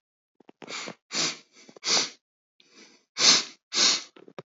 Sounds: Sniff